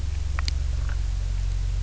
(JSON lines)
{"label": "anthrophony, boat engine", "recorder": "SoundTrap 300"}